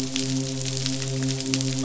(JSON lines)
{"label": "biophony, midshipman", "recorder": "SoundTrap 500"}